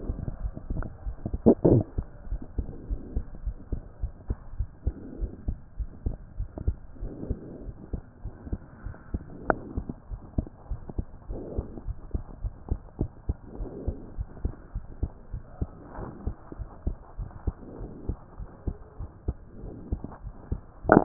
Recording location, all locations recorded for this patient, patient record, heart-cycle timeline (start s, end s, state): pulmonary valve (PV)
aortic valve (AV)+pulmonary valve (PV)+tricuspid valve (TV)+mitral valve (MV)
#Age: Child
#Sex: Male
#Height: 117.0 cm
#Weight: 12.0 kg
#Pregnancy status: False
#Murmur: Absent
#Murmur locations: nan
#Most audible location: nan
#Systolic murmur timing: nan
#Systolic murmur shape: nan
#Systolic murmur grading: nan
#Systolic murmur pitch: nan
#Systolic murmur quality: nan
#Diastolic murmur timing: nan
#Diastolic murmur shape: nan
#Diastolic murmur grading: nan
#Diastolic murmur pitch: nan
#Diastolic murmur quality: nan
#Outcome: Normal
#Campaign: 2015 screening campaign
0.00	2.57	unannotated
2.57	2.66	S2
2.66	2.88	diastole
2.88	3.02	S1
3.02	3.14	systole
3.14	3.24	S2
3.24	3.42	diastole
3.42	3.54	S1
3.54	3.68	systole
3.68	3.80	S2
3.80	4.00	diastole
4.00	4.14	S1
4.14	4.28	systole
4.28	4.38	S2
4.38	4.56	diastole
4.56	4.68	S1
4.68	4.82	systole
4.82	4.98	S2
4.98	5.16	diastole
5.16	5.30	S1
5.30	5.44	systole
5.44	5.58	S2
5.58	5.78	diastole
5.78	5.90	S1
5.90	6.04	systole
6.04	6.16	S2
6.16	6.36	diastole
6.36	6.48	S1
6.48	6.64	systole
6.64	6.78	S2
6.78	7.00	diastole
7.00	7.12	S1
7.12	7.28	systole
7.28	7.42	S2
7.42	7.64	diastole
7.64	7.74	S1
7.74	7.90	systole
7.90	8.00	S2
8.00	8.22	diastole
8.22	8.32	S1
8.32	8.48	systole
8.48	8.60	S2
8.60	8.84	diastole
8.84	8.96	S1
8.96	9.10	systole
9.10	9.22	S2
9.22	9.46	diastole
9.46	9.58	S1
9.58	9.74	systole
9.74	9.88	S2
9.88	10.10	diastole
10.10	10.20	S1
10.20	10.34	systole
10.34	10.46	S2
10.46	10.68	diastole
10.68	10.82	S1
10.82	10.96	systole
10.96	11.06	S2
11.06	11.28	diastole
11.28	11.40	S1
11.40	11.56	systole
11.56	11.66	S2
11.66	11.86	diastole
11.86	11.96	S1
11.96	12.10	systole
12.10	12.24	S2
12.24	12.42	diastole
12.42	12.54	S1
12.54	12.68	systole
12.68	12.80	S2
12.80	12.98	diastole
12.98	13.10	S1
13.10	13.26	systole
13.26	13.36	S2
13.36	13.58	diastole
13.58	13.72	S1
13.72	13.86	systole
13.86	13.96	S2
13.96	14.16	diastole
14.16	14.28	S1
14.28	14.42	systole
14.42	14.56	S2
14.56	14.74	diastole
14.74	14.84	S1
14.84	15.00	systole
15.00	15.14	S2
15.14	15.32	diastole
15.32	15.42	S1
15.42	15.60	systole
15.60	15.70	S2
15.70	15.96	diastole
15.96	16.08	S1
16.08	16.24	systole
16.24	16.36	S2
16.36	16.58	diastole
16.58	16.68	S1
16.68	16.84	systole
16.84	16.98	S2
16.98	17.18	diastole
17.18	17.32	S1
17.32	17.46	systole
17.46	17.56	S2
17.56	17.78	diastole
17.78	17.90	S1
17.90	18.06	systole
18.06	18.18	S2
18.18	18.38	diastole
18.38	18.48	S1
18.48	18.66	systole
18.66	18.78	S2
18.78	19.00	diastole
19.00	19.10	S1
19.10	19.24	systole
19.24	19.36	S2
19.36	19.60	diastole
19.60	21.04	unannotated